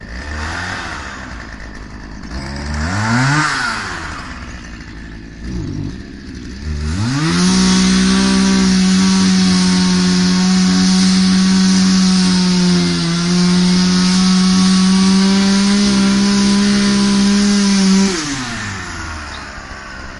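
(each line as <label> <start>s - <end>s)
A chainsaw revs multiple times, then cuts steadily before gradually fading out. 0.0s - 20.2s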